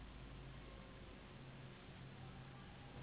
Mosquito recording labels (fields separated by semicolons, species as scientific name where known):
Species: Anopheles gambiae s.s.; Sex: female; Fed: unfed; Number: one; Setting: insect culture